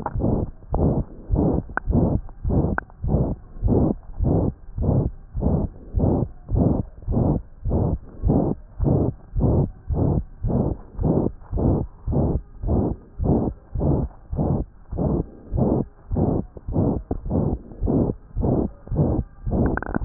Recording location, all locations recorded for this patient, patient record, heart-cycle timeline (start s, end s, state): tricuspid valve (TV)
aortic valve (AV)+pulmonary valve (PV)+tricuspid valve (TV)+mitral valve (MV)
#Age: Child
#Sex: Male
#Height: 121.0 cm
#Weight: 23.0 kg
#Pregnancy status: False
#Murmur: Present
#Murmur locations: aortic valve (AV)+mitral valve (MV)+pulmonary valve (PV)+tricuspid valve (TV)
#Most audible location: tricuspid valve (TV)
#Systolic murmur timing: Holosystolic
#Systolic murmur shape: Diamond
#Systolic murmur grading: III/VI or higher
#Systolic murmur pitch: High
#Systolic murmur quality: Harsh
#Diastolic murmur timing: nan
#Diastolic murmur shape: nan
#Diastolic murmur grading: nan
#Diastolic murmur pitch: nan
#Diastolic murmur quality: nan
#Outcome: Abnormal
#Campaign: 2015 screening campaign
0.00	1.06	unannotated
1.06	1.28	diastole
1.28	1.39	S1
1.39	1.55	systole
1.55	1.64	S2
1.64	1.86	diastole
1.86	1.95	S1
1.95	2.12	systole
2.12	2.22	S2
2.22	2.43	diastole
2.43	2.53	S1
2.53	2.71	systole
2.71	2.77	S2
2.77	3.02	diastole
3.02	3.11	S1
3.11	3.28	systole
3.28	3.38	S2
3.38	3.62	diastole
3.62	3.72	S1
3.72	3.88	systole
3.88	3.98	S2
3.98	4.19	diastole
4.19	4.28	S1
4.28	4.45	systole
4.45	4.56	S2
4.56	4.75	diastole
4.75	4.86	S1
4.86	5.04	systole
5.04	5.14	S2
5.14	5.35	diastole
5.35	5.43	S1
5.43	5.62	systole
5.62	5.69	S2
5.69	5.93	diastole
5.93	6.03	S1
6.03	6.18	systole
6.18	6.26	S2
6.26	6.50	diastole
6.50	6.60	S1
6.60	6.76	systole
6.76	6.86	S2
6.86	7.06	diastole
7.06	7.16	S1
7.16	7.32	systole
7.32	7.41	S2
7.41	7.63	diastole
7.63	7.75	S1
7.75	7.86	systole
7.86	8.00	S2
8.00	8.22	diastole
8.22	8.32	S1
8.32	8.48	systole
8.48	8.56	S2
8.56	8.78	diastole
8.78	8.88	S1
8.88	9.06	systole
9.06	9.14	S2
9.14	9.35	diastole
9.35	9.44	S1
9.44	9.59	systole
9.59	9.68	S2
9.68	9.88	diastole
9.88	9.99	S1
9.99	10.16	systole
10.16	10.26	S2
10.26	10.42	diastole
10.42	10.52	S1
10.52	10.68	systole
10.68	10.78	S2
10.78	10.97	diastole
10.97	11.06	S1
11.06	11.24	systole
11.24	11.31	S2
11.31	11.50	diastole
11.50	11.61	S1
11.61	11.79	systole
11.79	11.87	S2
11.87	12.05	diastole
12.05	12.15	S1
12.15	12.33	systole
12.33	12.42	S2
12.42	12.63	diastole
12.63	12.73	S1
12.73	12.88	systole
12.88	12.96	S2
12.96	13.16	diastole
13.16	13.28	S1
13.28	13.45	systole
13.45	13.53	S2
13.53	13.74	diastole
13.74	13.83	S1
13.83	14.00	systole
14.00	14.10	S2
14.10	14.30	diastole
14.30	14.42	S1
14.42	14.58	systole
14.58	14.68	S2
14.68	14.91	diastole
14.91	15.01	S1
15.01	15.17	systole
15.17	15.28	S2
15.28	15.51	diastole
15.51	15.63	S1
15.63	15.76	systole
15.76	15.88	S2
15.88	16.09	diastole
16.09	16.19	S1
16.19	16.35	systole
16.35	16.44	S2
16.44	16.66	diastole
16.66	16.76	S1
16.76	16.94	systole
16.94	17.01	S2
17.01	17.24	diastole
17.24	17.35	S1
17.35	17.49	systole
17.49	17.60	S2
17.60	17.79	diastole
17.79	17.89	S1
17.89	18.06	systole
18.06	18.13	S2
18.13	18.34	diastole
18.34	18.45	S1
18.45	18.60	systole
18.60	18.68	S2
18.68	18.89	diastole
18.89	18.99	S1
18.99	19.17	systole
19.17	19.26	S2
19.26	19.45	diastole
19.45	19.53	S1
19.53	19.71	systole
19.71	19.79	S2
19.79	20.05	unannotated